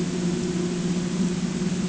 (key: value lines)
label: ambient
recorder: HydroMoth